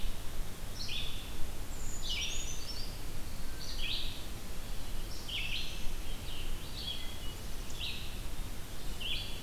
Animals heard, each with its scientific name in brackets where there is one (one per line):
Brown Creeper (Certhia americana)
Scarlet Tanager (Piranga olivacea)
Wood Thrush (Hylocichla mustelina)
Black-throated Blue Warbler (Setophaga caerulescens)
Red-eyed Vireo (Vireo olivaceus)